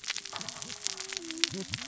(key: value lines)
label: biophony, cascading saw
recorder: SoundTrap 600 or HydroMoth